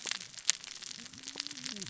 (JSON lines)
{"label": "biophony, cascading saw", "recorder": "SoundTrap 600 or HydroMoth"}